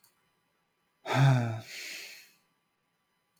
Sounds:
Sigh